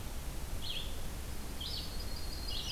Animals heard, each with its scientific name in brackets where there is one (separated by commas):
Yellow-rumped Warbler (Setophaga coronata), Red-eyed Vireo (Vireo olivaceus)